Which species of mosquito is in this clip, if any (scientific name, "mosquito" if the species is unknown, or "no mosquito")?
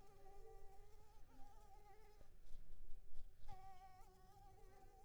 Anopheles arabiensis